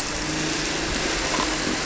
{"label": "anthrophony, boat engine", "recorder": "SoundTrap 300"}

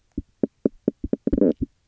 {"label": "biophony, knock croak", "recorder": "SoundTrap 300"}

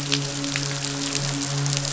{"label": "biophony, midshipman", "recorder": "SoundTrap 500"}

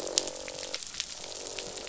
{"label": "biophony, croak", "recorder": "SoundTrap 500"}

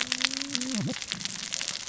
{"label": "biophony, cascading saw", "recorder": "SoundTrap 600 or HydroMoth"}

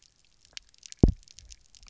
{"label": "biophony, double pulse", "recorder": "SoundTrap 300"}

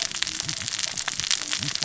{"label": "biophony, cascading saw", "recorder": "SoundTrap 600 or HydroMoth"}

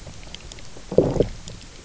{"label": "biophony, low growl", "recorder": "SoundTrap 300"}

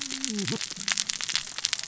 {"label": "biophony, cascading saw", "recorder": "SoundTrap 600 or HydroMoth"}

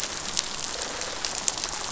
{"label": "biophony, rattle response", "recorder": "SoundTrap 500"}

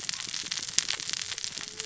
{"label": "biophony, cascading saw", "recorder": "SoundTrap 600 or HydroMoth"}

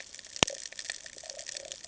{"label": "ambient", "recorder": "HydroMoth"}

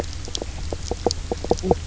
{"label": "biophony, knock croak", "recorder": "SoundTrap 300"}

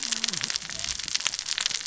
{"label": "biophony, cascading saw", "recorder": "SoundTrap 600 or HydroMoth"}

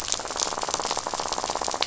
{"label": "biophony, rattle", "recorder": "SoundTrap 500"}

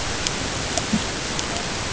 {"label": "ambient", "recorder": "HydroMoth"}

